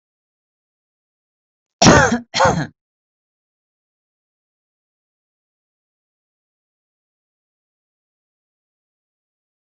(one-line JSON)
{"expert_labels": [{"quality": "good", "cough_type": "dry", "dyspnea": false, "wheezing": false, "stridor": false, "choking": false, "congestion": false, "nothing": true, "diagnosis": "healthy cough", "severity": "pseudocough/healthy cough"}]}